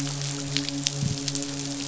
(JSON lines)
{"label": "biophony, midshipman", "recorder": "SoundTrap 500"}